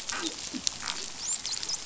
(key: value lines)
label: biophony, dolphin
recorder: SoundTrap 500